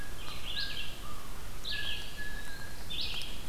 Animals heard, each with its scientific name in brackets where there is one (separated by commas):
Blue Jay (Cyanocitta cristata), Eastern Wood-Pewee (Contopus virens), American Crow (Corvus brachyrhynchos), Red-eyed Vireo (Vireo olivaceus)